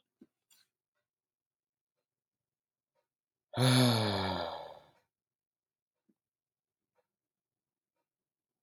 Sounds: Sigh